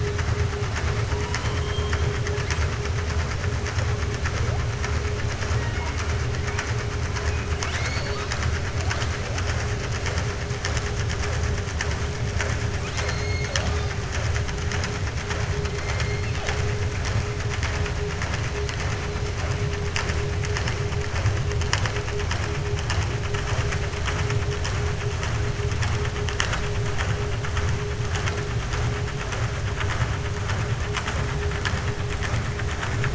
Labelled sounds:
7.5	8.5	killer whale, 0.61 to 7.8 kHz

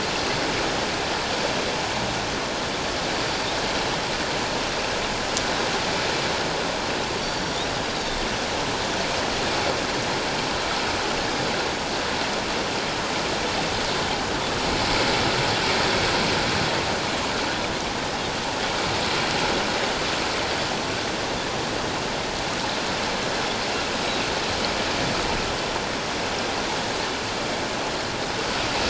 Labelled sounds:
3.1	3.5	Pacific white-sided dolphin, 4.5 to 4.7 kHz
7.2	7.4	Pacific white-sided dolphin, 4.4 to 4.7 kHz
7.9	8.2	Pacific white-sided dolphin, 3.5 to 3.9 kHz

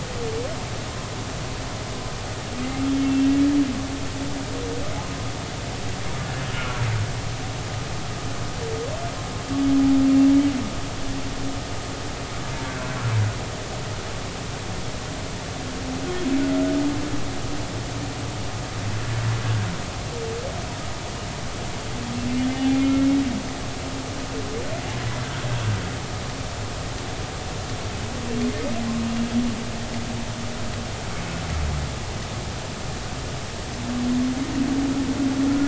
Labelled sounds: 3.0	3.3	humpback whale, 2.6 to 2.8 kHz
6.5	6.8	humpback whale, 1.2 to 1.4 kHz

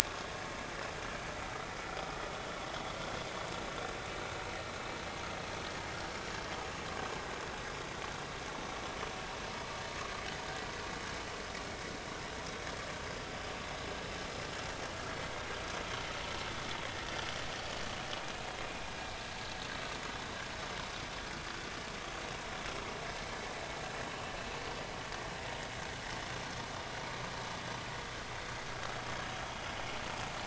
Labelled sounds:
1.0	1.3	vessel noise, 1.0 to 1.2 kHz

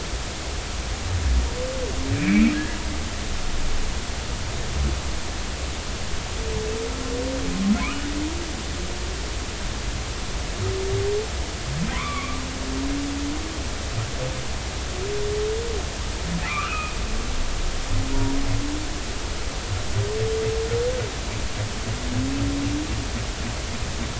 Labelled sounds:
2.1	2.5	humpback whale, 2.2 to 2.6 kHz
11.9	12.4	humpback whale, 0.96 to 2.5 kHz
16.4	17.0	humpback whale, 0.99 to 2.7 kHz

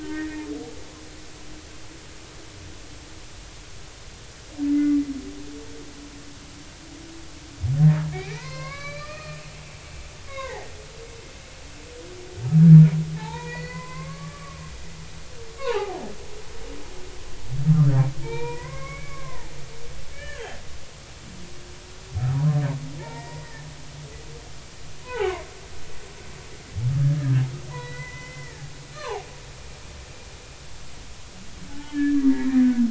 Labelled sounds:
0.0	0.5	humpback whale, 1.5 to 1.9 kHz
4.7	5.0	humpback whale, 2.0 to 2.1 kHz
8.1	9.4	humpback whale, 0.86 to 5.5 kHz
10.3	10.7	humpback whale, 0.80 to 2.2 kHz
13.2	14.6	humpback whale, 0.80 to 6.9 kHz
15.6	16.0	humpback whale, 0.80 to 2.9 kHz
17.7	17.9	humpback whale, 1.2 to 1.4 kHz
18.2	19.5	humpback whale, 0.80 to 3.9 kHz
20.1	20.5	humpback whale, 1.5 to 2.4 kHz
23.0	23.7	humpback whale, 0.86 to 2.4 kHz
25.0	25.5	humpback whale, 0.80 to 3.1 kHz
27.0	29.2	humpback whale, 0.80 to 5.6 kHz
31.7	32.6	humpback whale, 0.80 to 2.0 kHz

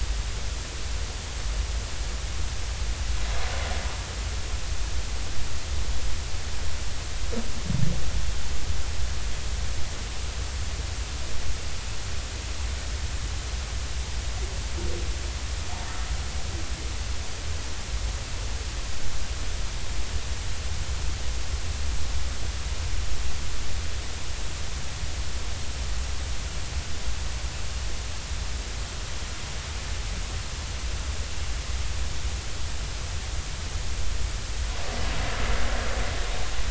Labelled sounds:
15.9	16.1	humpback whale, 1.2 to 1.4 kHz

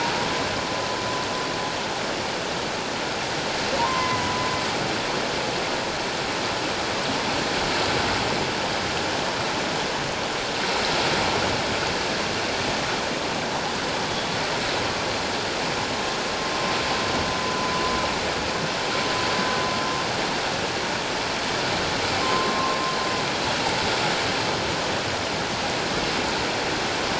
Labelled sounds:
3.8	4.4	humpback whale, 0.88 to 2.1 kHz
17.4	17.7	humpback whale, 0.97 to 1.0 kHz
22.2	22.8	humpback whale, 0.97 to 1.2 kHz

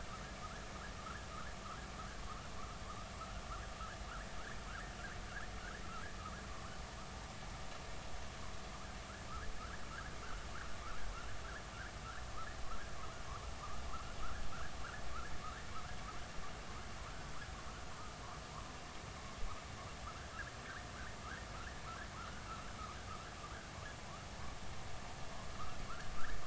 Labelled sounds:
4.7	4.9	vessel noise, 1.2 to 1.9 kHz
6.5	6.8	vessel noise, 0.99 to 1.6 kHz
22.1	22.4	vessel noise, 1.2 to 1.5 kHz

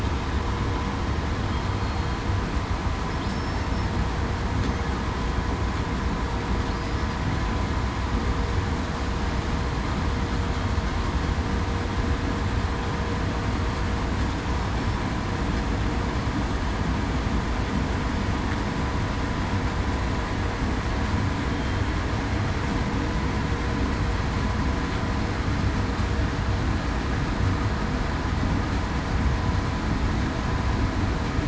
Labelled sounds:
3.3	3.7	killer whale, southern resident, 5.2 to 5.4 kHz

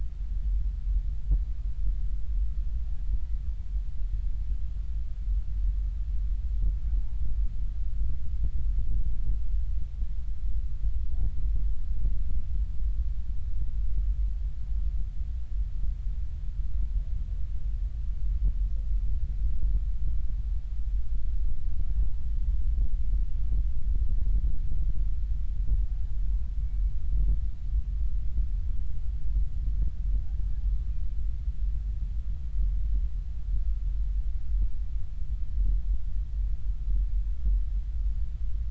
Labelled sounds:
26.2	26.5	humpback whale, 0.90 to 1.1 kHz

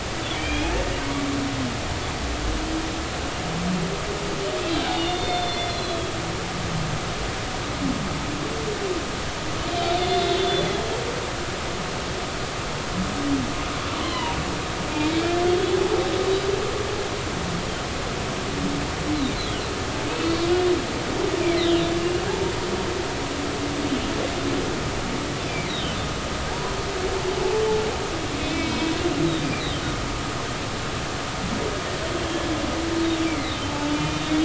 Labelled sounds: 0.3	0.7	humpback whale, 2.2 to 3.4 kHz
4.9	6.1	humpback whale, 2.0 to 5.7 kHz
9.7	10.8	humpback whale, 3.3 to 4.3 kHz
14.0	14.4	humpback whale, 0.90 to 3.2 kHz
15.1	15.8	humpback whale, 1.6 to 3.5 kHz
20.2	20.5	humpback whale, 4.3 to 4.5 kHz
21.9	22.5	humpback whale, 0.80 to 2.9 kHz
26.5	26.7	humpback whale, 0.80 to 1.0 kHz
28.4	28.7	humpback whale, 2.4 to 2.7 kHz
33.2	34.4	humpback whale, 2.0 to 3.8 kHz

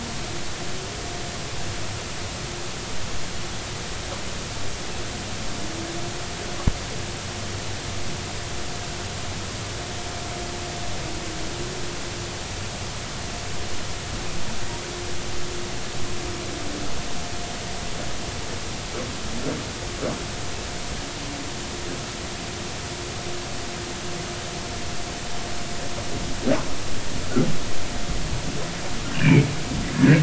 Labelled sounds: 29.2	29.5	humpback whale, 2.1 to 2.5 kHz
29.9	30.2	humpback whale, 1.4 to 1.8 kHz

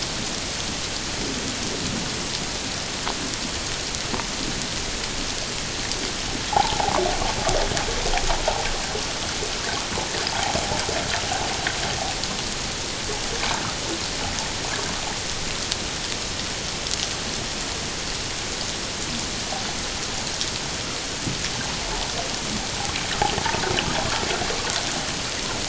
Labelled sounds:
6.5	7.0	water noise, 0.78 to 1.0 kHz

